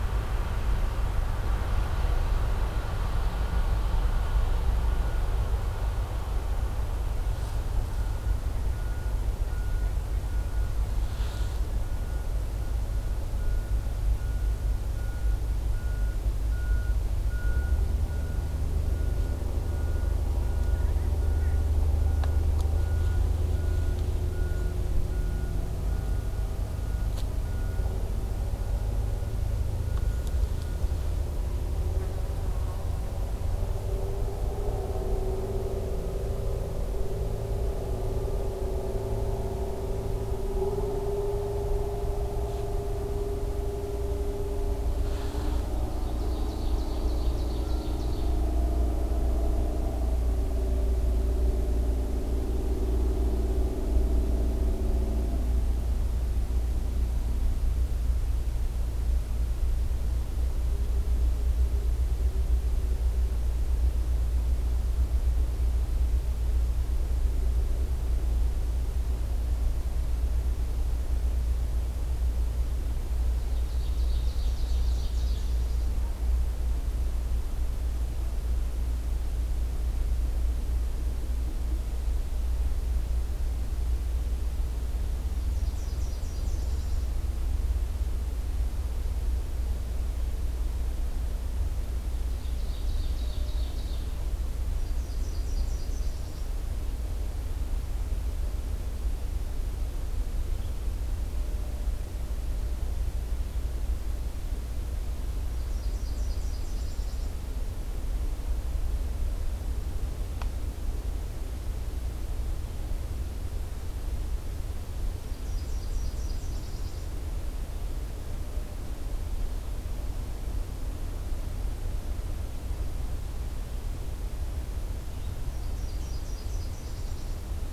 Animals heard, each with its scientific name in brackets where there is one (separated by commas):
Nashville Warbler (Leiothlypis ruficapilla), Ovenbird (Seiurus aurocapilla)